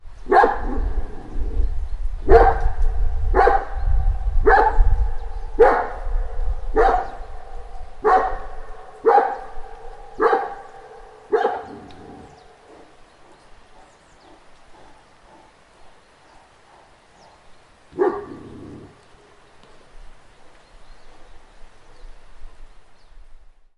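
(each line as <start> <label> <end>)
0.0 A dog barks repeatedly with an echo. 11.9
17.9 A dog barks once. 18.3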